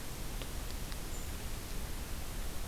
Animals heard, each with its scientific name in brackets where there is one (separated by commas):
Golden-crowned Kinglet (Regulus satrapa)